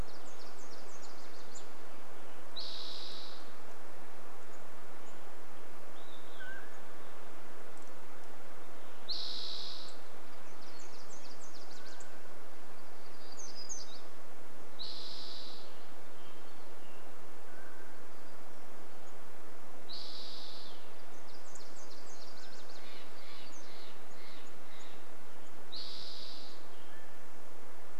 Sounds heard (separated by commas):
unidentified bird chip note, Mountain Quail call, unidentified sound, Olive-sided Flycatcher song, Spotted Towhee song, warbler song, Steller's Jay call, Nashville Warbler song